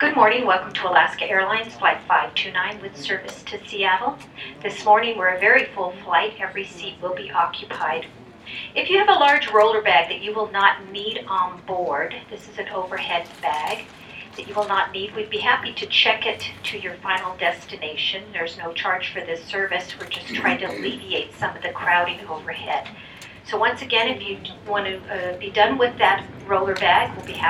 Is the person speaking a professional?
yes